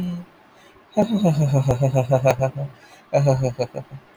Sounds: Laughter